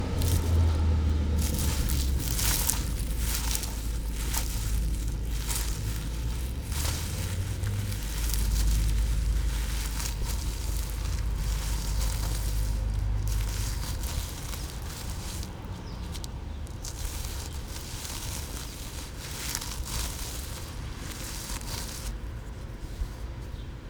Can the sound of crunching be heard?
yes